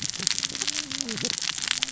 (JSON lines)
{"label": "biophony, cascading saw", "recorder": "SoundTrap 600 or HydroMoth"}